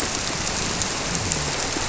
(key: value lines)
label: biophony
recorder: SoundTrap 300